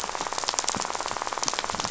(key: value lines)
label: biophony, rattle
recorder: SoundTrap 500